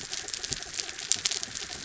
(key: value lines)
label: anthrophony, mechanical
recorder: SoundTrap 300